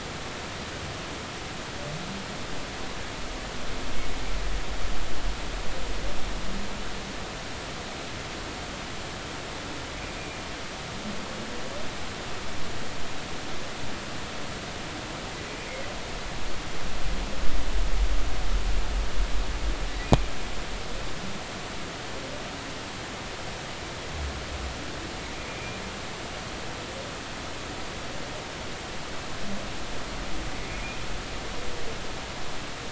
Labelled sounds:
10.2	10.4	humpback whale, 2.3 to 2.5 kHz
20.0	20.3	humpback whale, 2.3 to 2.5 kHz
25.5	25.8	humpback whale, 2.3 to 2.6 kHz

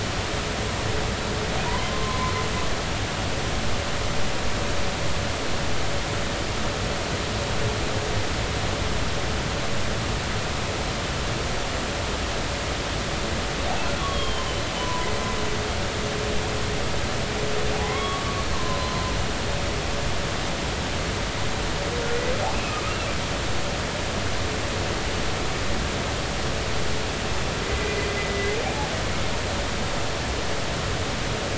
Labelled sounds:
1.7	2.3	humpback whale, 0.90 to 1.1 kHz
14.0	15.1	humpback whale, 0.93 to 3.4 kHz
17.8	18.3	humpback whale, 0.93 to 2.2 kHz
18.5	19.1	humpback whale, 0.96 to 1.1 kHz
22.5	22.8	humpback whale, 2.4 to 2.8 kHz
27.6	28.9	humpback whale, 0.80 to 2.1 kHz

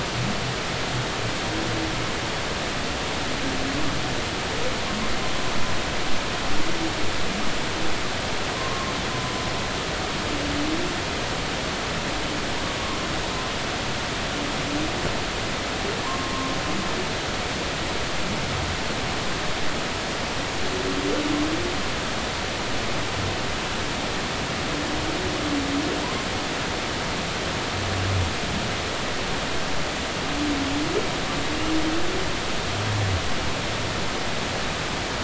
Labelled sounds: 8.5	8.9	humpback whale, 0.96 to 1.2 kHz
16.0	16.3	humpback whale, 0.90 to 1.1 kHz

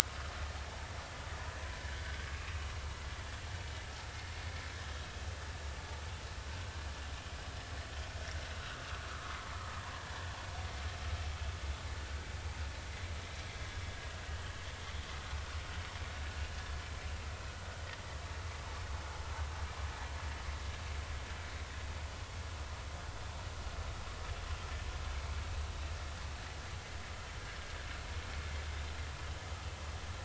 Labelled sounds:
9.2	9.5	vessel noise, 0.96 to 1.2 kHz

